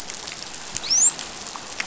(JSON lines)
{"label": "biophony, dolphin", "recorder": "SoundTrap 500"}